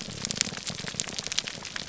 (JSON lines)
{"label": "biophony, grouper groan", "recorder": "SoundTrap 300"}